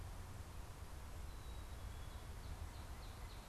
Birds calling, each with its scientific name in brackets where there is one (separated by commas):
Northern Cardinal (Cardinalis cardinalis), Black-capped Chickadee (Poecile atricapillus)